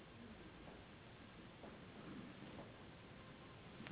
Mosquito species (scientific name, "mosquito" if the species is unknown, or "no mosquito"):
Anopheles gambiae s.s.